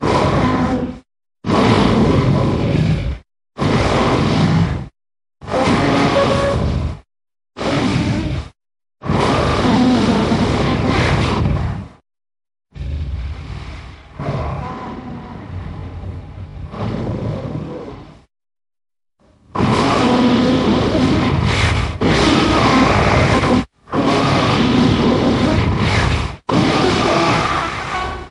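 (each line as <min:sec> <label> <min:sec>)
0:00.0 A dinosaur roars briefly nearby. 0:01.1
0:01.4 A medium-length roar from a dinosaur nearby. 0:03.2
0:03.5 A dinosaur roars briefly nearby. 0:04.9
0:05.3 A dinosaur roars loudly at close range. 0:07.1
0:07.5 A dinosaur roars briefly nearby. 0:08.6
0:09.0 A beast roars loudly nearby. 0:12.0
0:12.7 A low-intensity dinosaur sound at close range. 0:18.2
0:19.5 A dinosaur roaring nearby. 0:28.3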